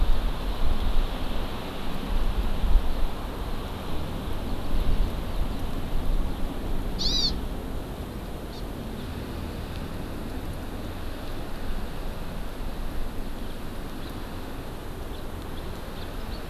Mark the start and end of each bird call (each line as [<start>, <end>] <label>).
[6.90, 7.30] Hawaii Amakihi (Chlorodrepanis virens)
[8.50, 8.60] Hawaii Amakihi (Chlorodrepanis virens)
[14.00, 14.10] House Finch (Haemorhous mexicanus)
[15.10, 15.20] House Finch (Haemorhous mexicanus)
[15.90, 16.10] House Finch (Haemorhous mexicanus)
[16.30, 16.40] Hawaii Amakihi (Chlorodrepanis virens)